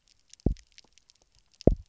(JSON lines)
{"label": "biophony, double pulse", "recorder": "SoundTrap 300"}